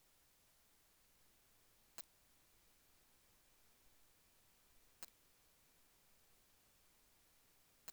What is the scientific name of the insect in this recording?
Poecilimon thoracicus